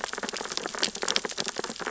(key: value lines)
label: biophony, sea urchins (Echinidae)
recorder: SoundTrap 600 or HydroMoth